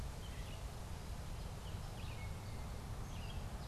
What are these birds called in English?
Red-eyed Vireo, American Goldfinch